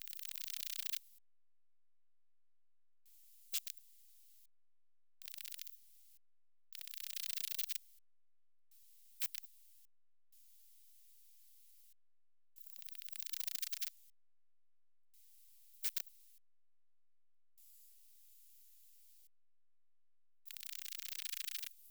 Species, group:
Odontura glabricauda, Orthoptera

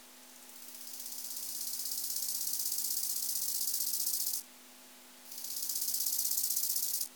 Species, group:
Chorthippus biguttulus, Orthoptera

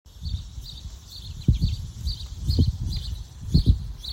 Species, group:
Neotibicen tibicen, Cicadidae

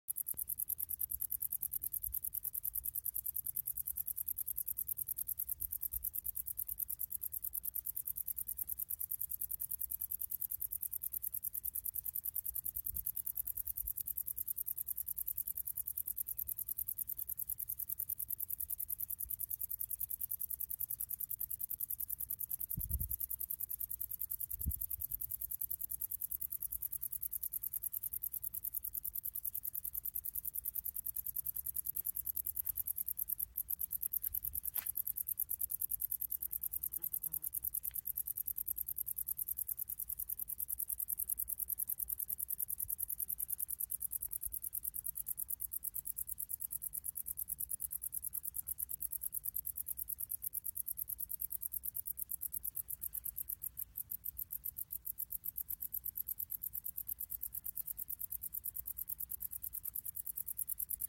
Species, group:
Decticus verrucivorus, Orthoptera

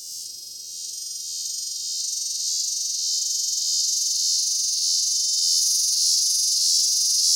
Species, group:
Hadoa duryi, Cicadidae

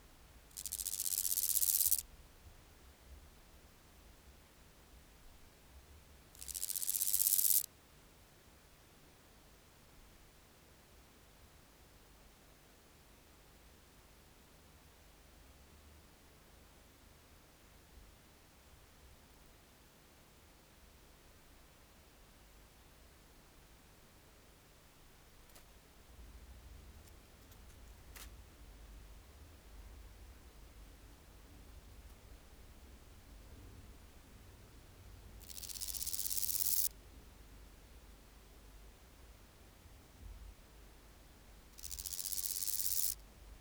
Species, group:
Omocestus raymondi, Orthoptera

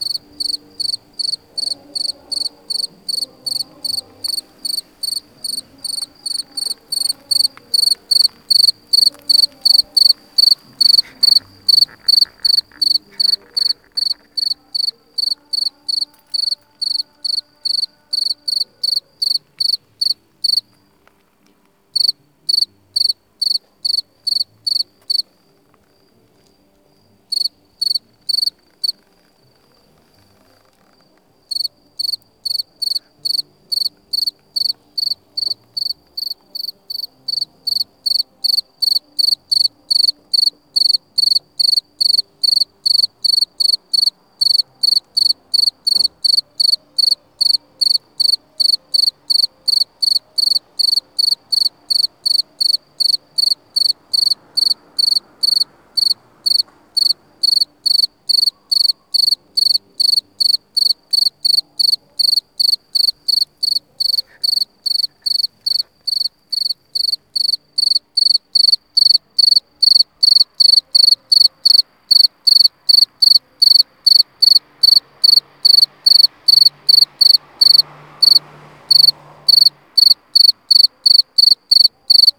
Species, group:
Gryllus bimaculatus, Orthoptera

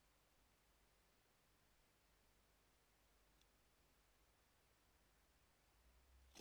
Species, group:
Gryllus bimaculatus, Orthoptera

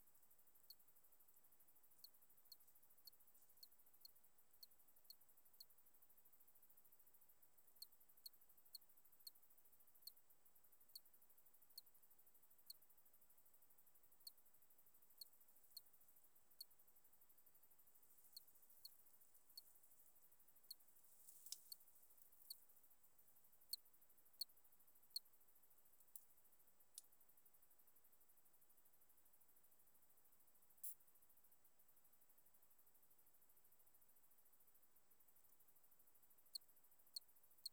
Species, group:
Eugryllodes pipiens, Orthoptera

